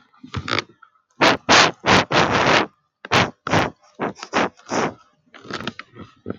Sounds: Sniff